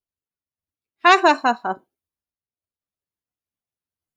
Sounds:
Laughter